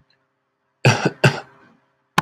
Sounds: Cough